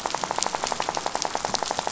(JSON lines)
{"label": "biophony, rattle", "recorder": "SoundTrap 500"}